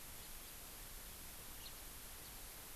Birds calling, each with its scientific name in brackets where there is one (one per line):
House Finch (Haemorhous mexicanus)